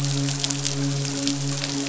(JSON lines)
{"label": "biophony, midshipman", "recorder": "SoundTrap 500"}